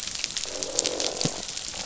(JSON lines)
{"label": "biophony, croak", "recorder": "SoundTrap 500"}